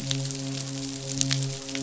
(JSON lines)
{"label": "biophony, midshipman", "recorder": "SoundTrap 500"}